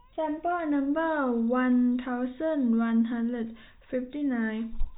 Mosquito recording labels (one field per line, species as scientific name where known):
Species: no mosquito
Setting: cup